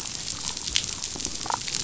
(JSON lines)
{"label": "biophony, damselfish", "recorder": "SoundTrap 500"}